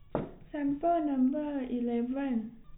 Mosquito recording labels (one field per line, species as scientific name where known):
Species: no mosquito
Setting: cup